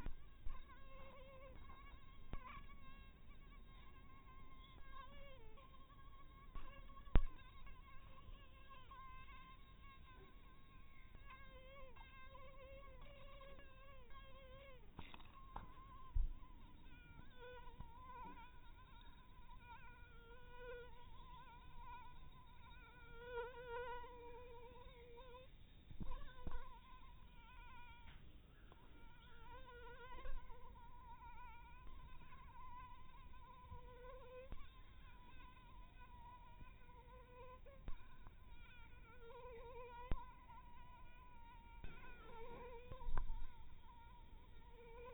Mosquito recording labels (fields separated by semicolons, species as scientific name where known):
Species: mosquito; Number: one; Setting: cup